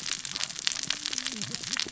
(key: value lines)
label: biophony, cascading saw
recorder: SoundTrap 600 or HydroMoth